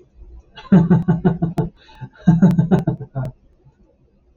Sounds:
Laughter